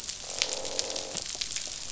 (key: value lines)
label: biophony, croak
recorder: SoundTrap 500